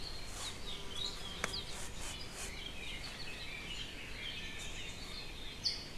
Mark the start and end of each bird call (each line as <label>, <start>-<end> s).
Apapane (Himatione sanguinea), 0.4-0.6 s
Apapane (Himatione sanguinea), 1.5-1.7 s
Apapane (Himatione sanguinea), 5.6-5.9 s